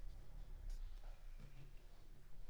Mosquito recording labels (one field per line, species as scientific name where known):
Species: Anopheles arabiensis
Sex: female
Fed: unfed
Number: one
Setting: cup